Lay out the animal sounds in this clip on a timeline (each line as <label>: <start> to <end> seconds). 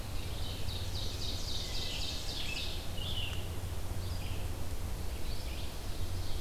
Ovenbird (Seiurus aurocapilla): 0.1 to 3.0 seconds
Scarlet Tanager (Piranga olivacea): 1.2 to 3.6 seconds
Red-eyed Vireo (Vireo olivaceus): 2.9 to 6.4 seconds